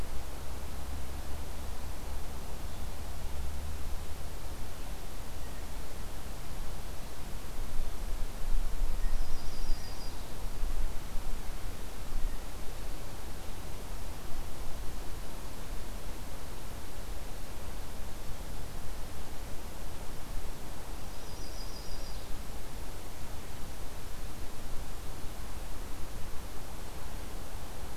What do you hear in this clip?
Blue Jay, Yellow-rumped Warbler